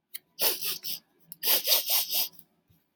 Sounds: Sniff